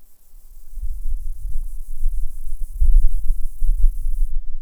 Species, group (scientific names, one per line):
Gomphocerippus rufus
Orthoptera